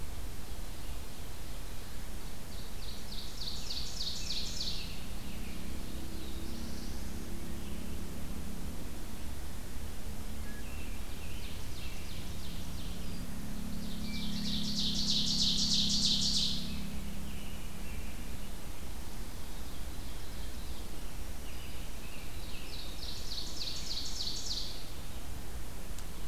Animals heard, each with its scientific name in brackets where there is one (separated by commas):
American Robin (Turdus migratorius), Black-throated Blue Warbler (Setophaga caerulescens), Ovenbird (Seiurus aurocapilla), Wood Thrush (Hylocichla mustelina)